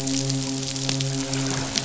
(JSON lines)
{"label": "biophony, midshipman", "recorder": "SoundTrap 500"}